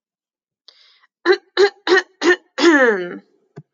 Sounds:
Throat clearing